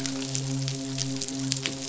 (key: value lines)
label: biophony, midshipman
recorder: SoundTrap 500